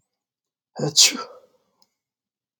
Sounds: Sneeze